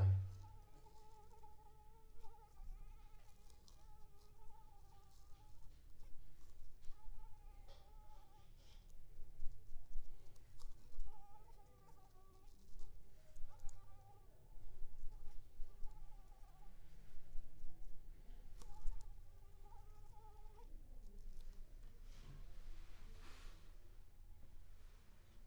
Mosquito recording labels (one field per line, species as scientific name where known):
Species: Anopheles arabiensis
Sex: female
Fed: unfed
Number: one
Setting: cup